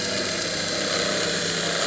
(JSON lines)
{"label": "anthrophony, boat engine", "recorder": "SoundTrap 300"}